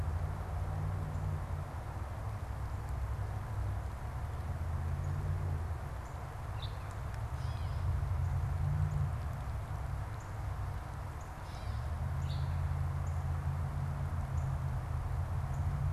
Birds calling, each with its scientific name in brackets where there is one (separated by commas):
Northern Cardinal (Cardinalis cardinalis), Gray Catbird (Dumetella carolinensis)